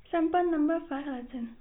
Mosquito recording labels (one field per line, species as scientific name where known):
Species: no mosquito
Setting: cup